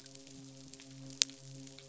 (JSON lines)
{"label": "biophony, midshipman", "recorder": "SoundTrap 500"}